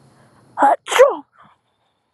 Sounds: Sneeze